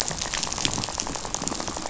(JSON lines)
{"label": "biophony, rattle", "recorder": "SoundTrap 500"}